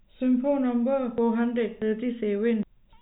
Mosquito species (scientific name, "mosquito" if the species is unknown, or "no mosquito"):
no mosquito